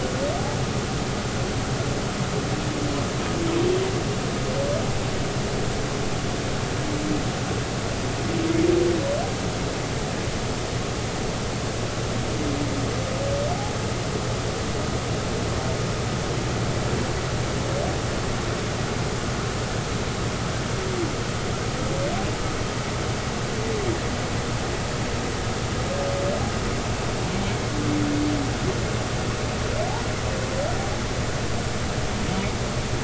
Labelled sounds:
13.5	13.8	humpback whale, 0.80 to 0.90 kHz

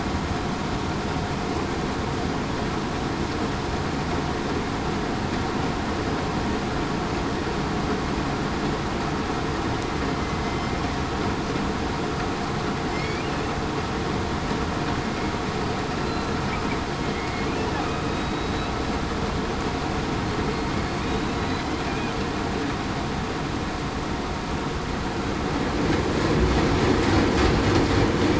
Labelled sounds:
10.4	10.8	killer whale, southern resident, 2.0 to 2.1 kHz
17.0	17.5	killer whale, southern resident, 2.1 to 2.2 kHz
18.1	18.7	killer whale, southern resident, 3.8 to 4.0 kHz
21.2	21.6	killer whale, southern resident, 3.8 to 4.1 kHz

